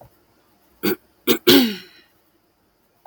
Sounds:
Throat clearing